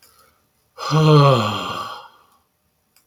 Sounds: Sigh